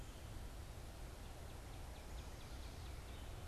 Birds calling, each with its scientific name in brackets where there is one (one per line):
Northern Cardinal (Cardinalis cardinalis)